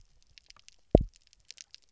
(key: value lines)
label: biophony, double pulse
recorder: SoundTrap 300